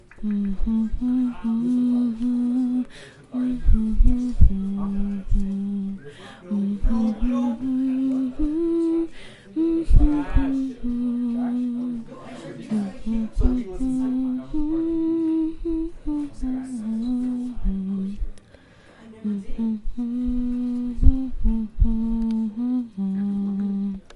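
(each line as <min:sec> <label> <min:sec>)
0:00.0 Soft, melodic humming by a woman. 0:24.2
0:00.0 Soft, muffled voices speaking in the background. 0:24.2
0:05.2 A mouse button clicks softly. 0:05.6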